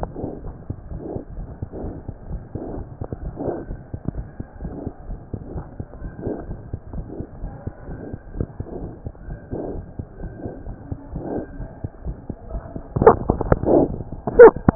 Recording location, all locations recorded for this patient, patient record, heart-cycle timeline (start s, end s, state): mitral valve (MV)
aortic valve (AV)+pulmonary valve (PV)+tricuspid valve (TV)+mitral valve (MV)
#Age: Child
#Sex: Male
#Height: 71.0 cm
#Weight: 9.1 kg
#Pregnancy status: False
#Murmur: Absent
#Murmur locations: nan
#Most audible location: nan
#Systolic murmur timing: nan
#Systolic murmur shape: nan
#Systolic murmur grading: nan
#Systolic murmur pitch: nan
#Systolic murmur quality: nan
#Diastolic murmur timing: nan
#Diastolic murmur shape: nan
#Diastolic murmur grading: nan
#Diastolic murmur pitch: nan
#Diastolic murmur quality: nan
#Outcome: Abnormal
#Campaign: 2015 screening campaign
0.00	6.91	unannotated
6.91	7.04	S1
7.04	7.17	systole
7.17	7.28	S2
7.28	7.40	diastole
7.40	7.52	S1
7.52	7.64	systole
7.64	7.74	S2
7.74	7.86	diastole
7.86	7.96	S1
7.96	8.10	systole
8.10	8.18	S2
8.18	8.34	diastole
8.34	8.44	S1
8.44	8.56	systole
8.56	8.66	S2
8.66	8.80	diastole
8.80	8.90	S1
8.90	9.04	systole
9.04	9.13	S2
9.13	9.25	diastole
9.25	9.39	S1
9.39	9.50	systole
9.50	9.60	S2
9.60	9.73	diastole
9.73	9.84	S1
9.84	9.96	systole
9.96	10.05	S2
10.05	10.19	diastole
10.19	10.29	S1
10.29	10.42	systole
10.42	10.52	S2
10.52	14.75	unannotated